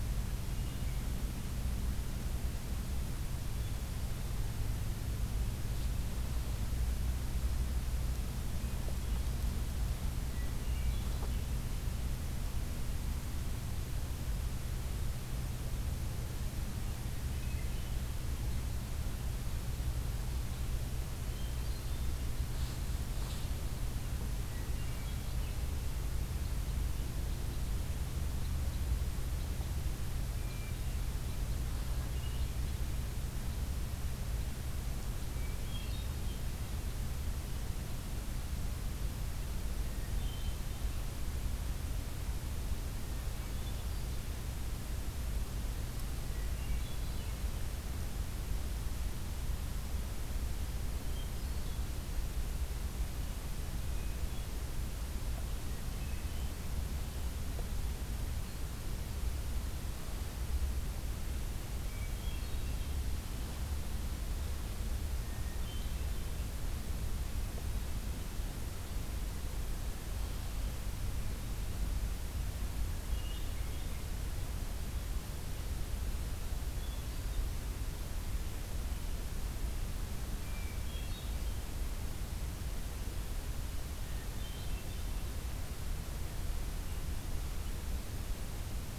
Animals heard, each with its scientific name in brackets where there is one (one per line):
Hermit Thrush (Catharus guttatus)